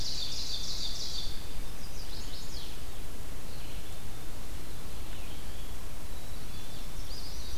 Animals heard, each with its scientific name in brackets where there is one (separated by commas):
Black-capped Chickadee (Poecile atricapillus), Eastern Wood-Pewee (Contopus virens), Ovenbird (Seiurus aurocapilla), Red-eyed Vireo (Vireo olivaceus), Chestnut-sided Warbler (Setophaga pensylvanica)